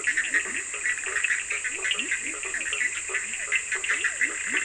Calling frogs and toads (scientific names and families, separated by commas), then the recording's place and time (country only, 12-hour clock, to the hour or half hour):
Boana bischoffi (Hylidae), Boana faber (Hylidae), Leptodactylus latrans (Leptodactylidae), Sphaenorhynchus surdus (Hylidae)
Brazil, midnight